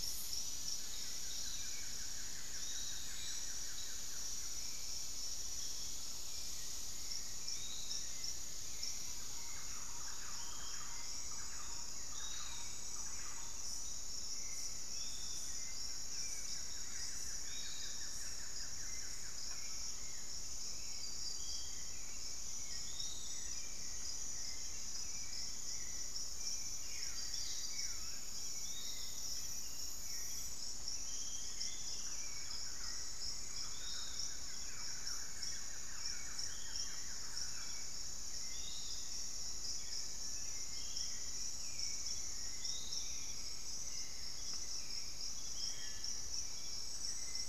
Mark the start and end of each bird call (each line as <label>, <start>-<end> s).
Hauxwell's Thrush (Turdus hauxwelli), 0.0-47.5 s
Piratic Flycatcher (Legatus leucophaius), 0.0-47.5 s
Buff-throated Woodcreeper (Xiphorhynchus guttatus), 0.4-5.2 s
Thrush-like Wren (Campylorhynchus turdinus), 8.9-13.9 s
Buff-throated Woodcreeper (Xiphorhynchus guttatus), 15.3-20.1 s
unidentified bird, 23.5-24.8 s
Buff-throated Woodcreeper (Xiphorhynchus guttatus), 26.7-28.3 s
Thrush-like Wren (Campylorhynchus turdinus), 30.7-37.3 s
Buff-throated Woodcreeper (Xiphorhynchus guttatus), 33.1-37.9 s
unidentified bird, 38.5-40.2 s